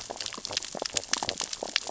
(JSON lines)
{"label": "biophony, sea urchins (Echinidae)", "recorder": "SoundTrap 600 or HydroMoth"}
{"label": "biophony, stridulation", "recorder": "SoundTrap 600 or HydroMoth"}